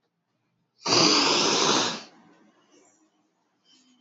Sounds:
Sigh